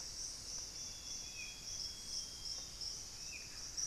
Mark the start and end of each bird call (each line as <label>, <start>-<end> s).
Hauxwell's Thrush (Turdus hauxwelli), 0.0-3.9 s
Amazonian Grosbeak (Cyanoloxia rothschildii), 0.7-3.0 s
Buff-breasted Wren (Cantorchilus leucotis), 3.4-3.9 s